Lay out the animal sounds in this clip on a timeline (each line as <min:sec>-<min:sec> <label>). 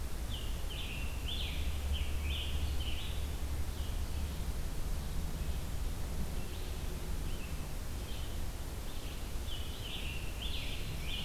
0:00.0-0:03.6 Scarlet Tanager (Piranga olivacea)
0:04.7-0:11.2 Red-eyed Vireo (Vireo olivaceus)
0:09.3-0:11.2 Scarlet Tanager (Piranga olivacea)
0:10.4-0:11.2 Ovenbird (Seiurus aurocapilla)